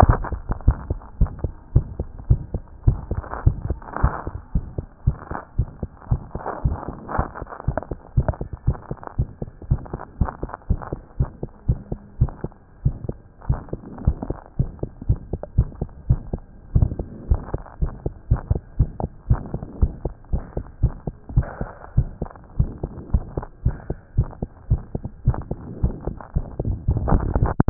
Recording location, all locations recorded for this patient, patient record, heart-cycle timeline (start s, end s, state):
aortic valve (AV)
aortic valve (AV)+pulmonary valve (PV)+tricuspid valve (TV)+mitral valve (MV)
#Age: Child
#Sex: Female
#Height: 104.0 cm
#Weight: 15.1 kg
#Pregnancy status: False
#Murmur: Present
#Murmur locations: aortic valve (AV)+mitral valve (MV)+pulmonary valve (PV)
#Most audible location: pulmonary valve (PV)
#Systolic murmur timing: Early-systolic
#Systolic murmur shape: Plateau
#Systolic murmur grading: II/VI
#Systolic murmur pitch: Low
#Systolic murmur quality: Blowing
#Diastolic murmur timing: nan
#Diastolic murmur shape: nan
#Diastolic murmur grading: nan
#Diastolic murmur pitch: nan
#Diastolic murmur quality: nan
#Outcome: Abnormal
#Campaign: 2014 screening campaign
0.18	0.32	systole
0.32	0.42	S2
0.42	0.66	diastole
0.66	0.78	S1
0.78	0.90	systole
0.90	1.00	S2
1.00	1.20	diastole
1.20	1.32	S1
1.32	1.42	systole
1.42	1.52	S2
1.52	1.74	diastole
1.74	1.86	S1
1.86	1.98	systole
1.98	2.08	S2
2.08	2.28	diastole
2.28	2.42	S1
2.42	2.52	systole
2.52	2.62	S2
2.62	2.86	diastole
2.86	3.00	S1
3.00	3.10	systole
3.10	3.22	S2
3.22	3.44	diastole
3.44	3.58	S1
3.58	3.68	systole
3.68	3.78	S2
3.78	4.02	diastole
4.02	4.14	S1
4.14	4.26	systole
4.26	4.36	S2
4.36	4.54	diastole
4.54	4.66	S1
4.66	4.78	systole
4.78	4.86	S2
4.86	5.06	diastole
5.06	5.16	S1
5.16	5.30	systole
5.30	5.38	S2
5.38	5.58	diastole
5.58	5.68	S1
5.68	5.82	systole
5.82	5.90	S2
5.90	6.10	diastole
6.10	6.22	S1
6.22	6.34	systole
6.34	6.42	S2
6.42	6.64	diastole
6.64	6.76	S1
6.76	6.88	systole
6.88	6.98	S2
6.98	7.16	diastole
7.16	7.28	S1
7.28	7.40	systole
7.40	7.48	S2
7.48	7.66	diastole
7.66	7.78	S1
7.78	7.90	systole
7.90	7.98	S2
7.98	8.16	diastole
8.16	8.28	S1
8.28	8.40	systole
8.40	8.48	S2
8.48	8.66	diastole
8.66	8.78	S1
8.78	8.90	systole
8.90	8.98	S2
8.98	9.18	diastole
9.18	9.28	S1
9.28	9.40	systole
9.40	9.50	S2
9.50	9.70	diastole
9.70	9.80	S1
9.80	9.92	systole
9.92	10.02	S2
10.02	10.20	diastole
10.20	10.30	S1
10.30	10.42	systole
10.42	10.50	S2
10.50	10.68	diastole
10.68	10.80	S1
10.80	10.92	systole
10.92	11.00	S2
11.00	11.18	diastole
11.18	11.30	S1
11.30	11.42	systole
11.42	11.50	S2
11.50	11.68	diastole
11.68	11.78	S1
11.78	11.90	systole
11.90	12.00	S2
12.00	12.20	diastole
12.20	12.32	S1
12.32	12.44	systole
12.44	12.52	S2
12.52	12.84	diastole
12.84	12.96	S1
12.96	13.08	systole
13.08	13.18	S2
13.18	13.48	diastole
13.48	13.60	S1
13.60	13.72	systole
13.72	13.82	S2
13.82	14.04	diastole
14.04	14.16	S1
14.16	14.28	systole
14.28	14.38	S2
14.38	14.58	diastole
14.58	14.70	S1
14.70	14.82	systole
14.82	14.90	S2
14.90	15.08	diastole
15.08	15.20	S1
15.20	15.32	systole
15.32	15.40	S2
15.40	15.56	diastole
15.56	15.68	S1
15.68	15.80	systole
15.80	15.88	S2
15.88	16.08	diastole
16.08	16.20	S1
16.20	16.32	systole
16.32	16.42	S2
16.42	16.74	diastole
16.74	16.90	S1
16.90	17.00	systole
17.00	17.08	S2
17.08	17.30	diastole
17.30	17.40	S1
17.40	17.52	systole
17.52	17.62	S2
17.62	17.80	diastole
17.80	17.92	S1
17.92	18.04	systole
18.04	18.14	S2
18.14	18.30	diastole
18.30	18.40	S1
18.40	18.50	systole
18.50	18.60	S2
18.60	18.78	diastole
18.78	18.90	S1
18.90	19.02	systole
19.02	19.10	S2
19.10	19.28	diastole
19.28	19.40	S1
19.40	19.52	systole
19.52	19.62	S2
19.62	19.80	diastole
19.80	19.92	S1
19.92	20.04	systole
20.04	20.14	S2
20.14	20.32	diastole
20.32	20.44	S1
20.44	20.56	systole
20.56	20.64	S2
20.64	20.82	diastole
20.82	20.94	S1
20.94	21.06	systole
21.06	21.14	S2
21.14	21.34	diastole
21.34	21.46	S1
21.46	21.60	systole
21.60	21.70	S2
21.70	21.96	diastole
21.96	22.08	S1
22.08	22.20	systole
22.20	22.30	S2
22.30	22.58	diastole
22.58	22.70	S1
22.70	22.82	systole
22.82	22.92	S2
22.92	23.12	diastole
23.12	23.24	S1
23.24	23.36	systole
23.36	23.46	S2
23.46	23.64	diastole
23.64	23.76	S1
23.76	23.88	systole
23.88	23.98	S2
23.98	24.16	diastole
24.16	24.28	S1
24.28	24.40	systole
24.40	24.50	S2
24.50	24.70	diastole
24.70	24.82	S1
24.82	24.94	systole
24.94	25.04	S2
25.04	25.26	diastole
25.26	25.38	S1
25.38	25.50	systole
25.50	25.58	S2
25.58	25.82	diastole
25.82	25.94	S1
25.94	26.06	systole
26.06	26.16	S2
26.16	26.36	diastole
26.36	26.46	S1
26.46	26.64	systole
26.64	26.76	S2
26.76	26.94	diastole
26.94	27.22	S1
27.22	27.40	systole
27.40	27.54	S2
27.54	27.68	diastole
27.68	27.70	S1